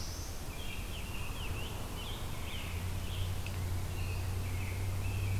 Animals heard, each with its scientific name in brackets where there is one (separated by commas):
Black-throated Blue Warbler (Setophaga caerulescens), American Robin (Turdus migratorius), Scarlet Tanager (Piranga olivacea)